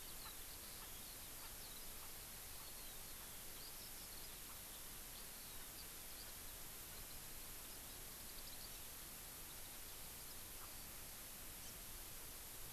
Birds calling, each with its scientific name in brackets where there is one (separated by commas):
Hawaii Amakihi (Chlorodrepanis virens), Erckel's Francolin (Pternistis erckelii), Eurasian Skylark (Alauda arvensis)